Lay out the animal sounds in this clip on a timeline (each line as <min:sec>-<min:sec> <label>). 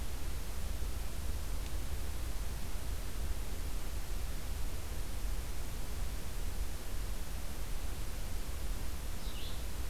0:09.2-0:09.7 Red-eyed Vireo (Vireo olivaceus)